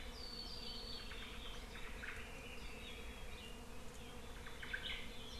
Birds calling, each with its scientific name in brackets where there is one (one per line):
Hawaii Creeper (Loxops mana)
Omao (Myadestes obscurus)